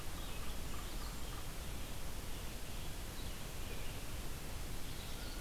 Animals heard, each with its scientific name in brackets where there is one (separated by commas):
Blue-headed Vireo (Vireo solitarius), Yellow-bellied Sapsucker (Sphyrapicus varius)